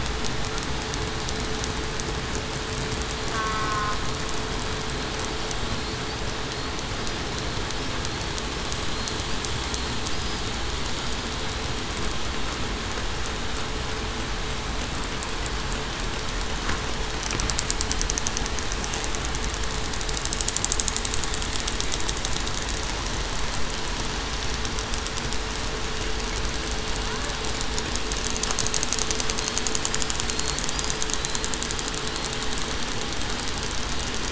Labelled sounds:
3.3	4.0	killer whale, southern resident, 1.0 to 1.5 kHz

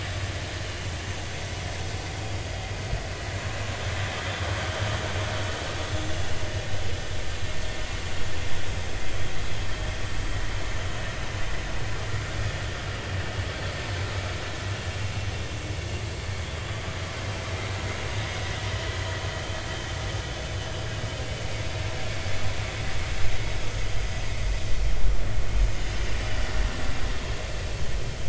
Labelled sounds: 6.1	6.4	vessel noise, 2.6 to 3.0 kHz
27.1	27.4	vessel noise, 4.3 to 4.4 kHz

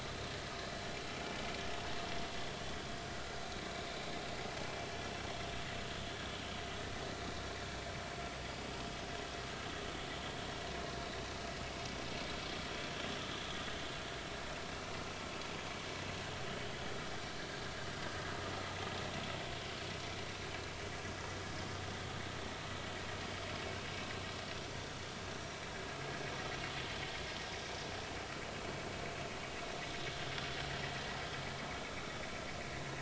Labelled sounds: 3.3	3.7	vessel noise, 3.8 to 4.1 kHz

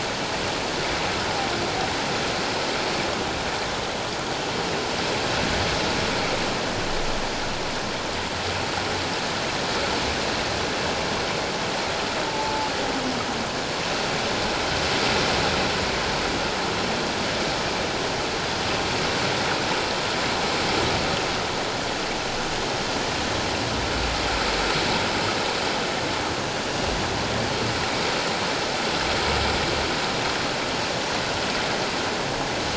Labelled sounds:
12.3	12.7	humpback whale, 0.81 to 0.91 kHz

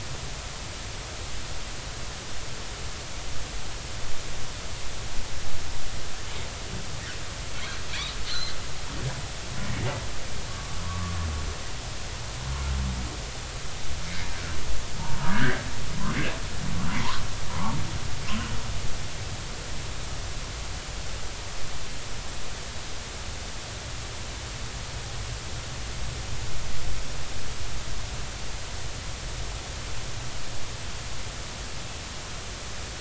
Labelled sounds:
7.9	8.6	humpback whale, 3.8 to 4.8 kHz
10.5	11.1	humpback whale, 0.99 to 1.2 kHz
15.3	15.6	humpback whale, 1.4 to 2.0 kHz
17.5	17.8	humpback whale, 0.80 to 1.2 kHz

